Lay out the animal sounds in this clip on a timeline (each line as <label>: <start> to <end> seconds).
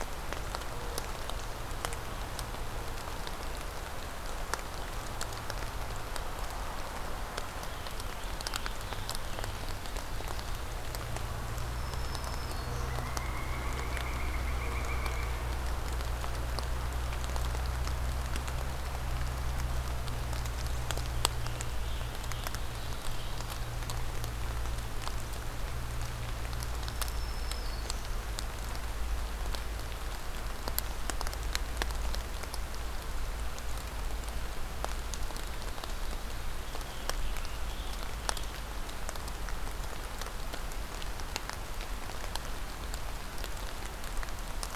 Scarlet Tanager (Piranga olivacea): 7.4 to 9.7 seconds
Black-throated Green Warbler (Setophaga virens): 11.5 to 13.1 seconds
Pileated Woodpecker (Dryocopus pileatus): 12.5 to 16.1 seconds
Scarlet Tanager (Piranga olivacea): 21.1 to 23.7 seconds
Black-throated Green Warbler (Setophaga virens): 26.6 to 28.3 seconds
Scarlet Tanager (Piranga olivacea): 36.3 to 38.6 seconds